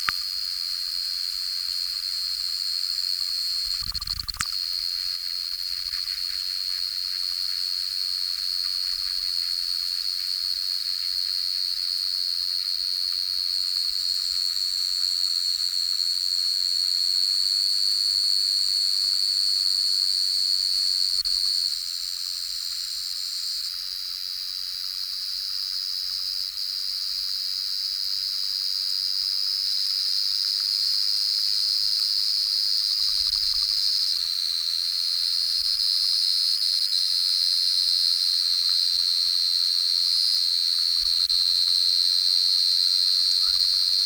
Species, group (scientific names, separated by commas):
Pteronemobius lineolatus, Orthoptera